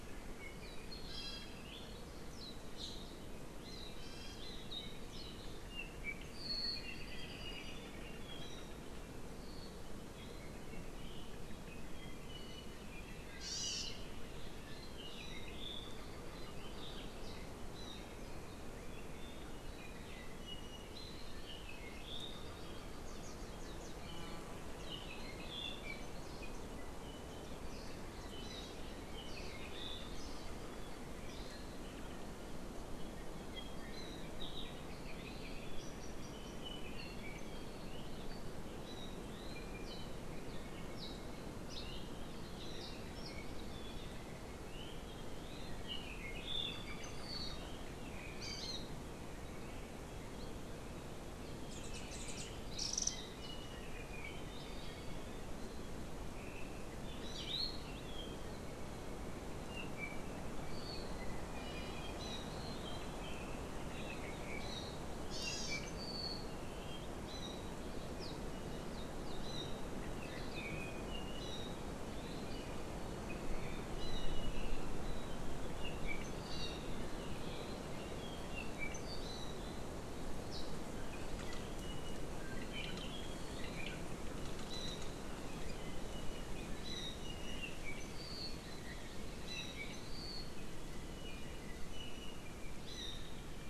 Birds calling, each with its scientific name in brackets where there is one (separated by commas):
Apapane (Himatione sanguinea), Iiwi (Drepanis coccinea), Hawaiian Hawk (Buteo solitarius), Warbling White-eye (Zosterops japonicus), Hawaii Amakihi (Chlorodrepanis virens)